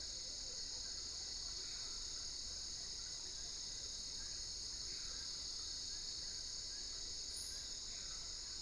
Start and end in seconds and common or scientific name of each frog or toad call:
none